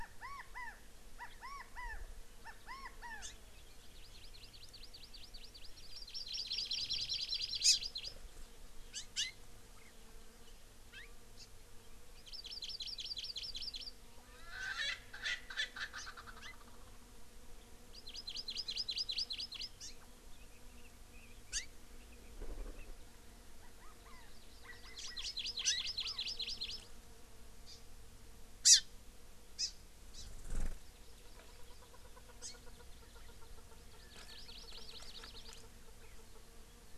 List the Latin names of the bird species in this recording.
Callipepla californica, Chlorodrepanis virens, Haemorhous mexicanus, Pternistis erckelii, Alectoris chukar